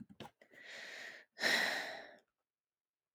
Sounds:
Sigh